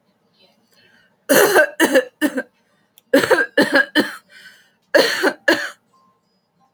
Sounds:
Cough